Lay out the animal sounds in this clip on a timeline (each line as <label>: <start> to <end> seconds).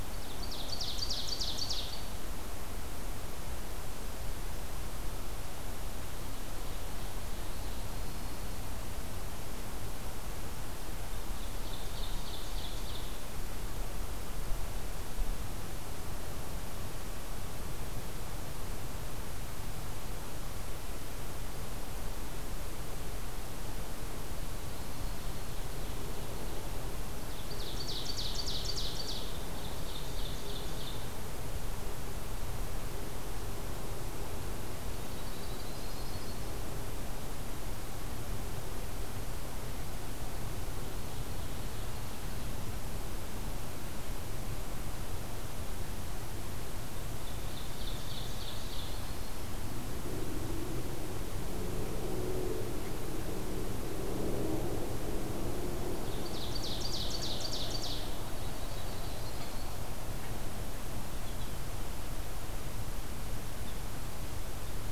Ovenbird (Seiurus aurocapilla): 0.0 to 2.3 seconds
Ovenbird (Seiurus aurocapilla): 5.9 to 7.7 seconds
Dark-eyed Junco (Junco hyemalis): 7.6 to 8.8 seconds
Ovenbird (Seiurus aurocapilla): 11.3 to 13.3 seconds
Dark-eyed Junco (Junco hyemalis): 24.4 to 25.7 seconds
Ovenbird (Seiurus aurocapilla): 24.8 to 26.7 seconds
Ovenbird (Seiurus aurocapilla): 27.1 to 31.2 seconds
Yellow-rumped Warbler (Setophaga coronata): 34.9 to 36.5 seconds
Ovenbird (Seiurus aurocapilla): 40.4 to 42.2 seconds
Ovenbird (Seiurus aurocapilla): 47.1 to 49.4 seconds
Ovenbird (Seiurus aurocapilla): 56.1 to 58.1 seconds
Yellow-rumped Warbler (Setophaga coronata): 58.3 to 59.8 seconds